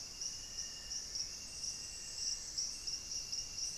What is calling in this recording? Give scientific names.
Nasica longirostris